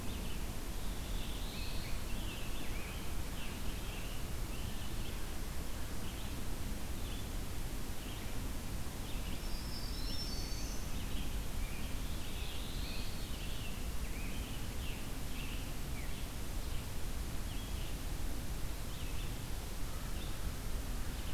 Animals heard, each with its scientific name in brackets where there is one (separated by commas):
Scarlet Tanager (Piranga olivacea), Black-throated Blue Warbler (Setophaga caerulescens), Black-throated Green Warbler (Setophaga virens), Red-eyed Vireo (Vireo olivaceus)